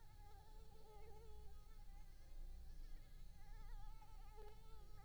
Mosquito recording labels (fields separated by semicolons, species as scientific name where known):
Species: Culex pipiens complex; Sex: female; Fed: unfed; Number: one; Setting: cup